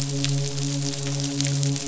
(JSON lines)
{"label": "biophony, midshipman", "recorder": "SoundTrap 500"}